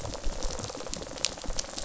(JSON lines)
{"label": "biophony, rattle response", "recorder": "SoundTrap 500"}